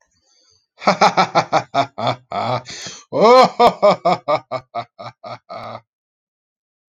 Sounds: Laughter